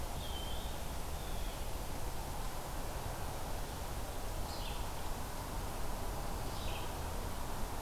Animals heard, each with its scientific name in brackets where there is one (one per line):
Red-eyed Vireo (Vireo olivaceus)
Blue Jay (Cyanocitta cristata)
Eastern Wood-Pewee (Contopus virens)